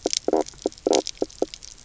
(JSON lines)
{"label": "biophony, knock croak", "recorder": "SoundTrap 300"}